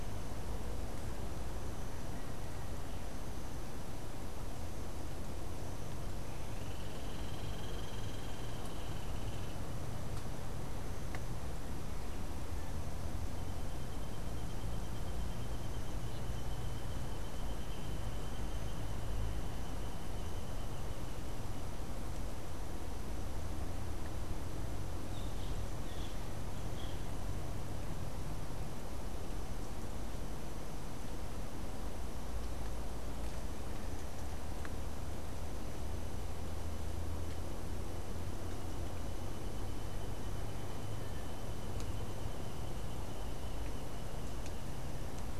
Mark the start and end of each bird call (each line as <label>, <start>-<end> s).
Hoffmann's Woodpecker (Melanerpes hoffmannii), 6.3-9.8 s
Boat-billed Flycatcher (Megarynchus pitangua), 25.1-27.2 s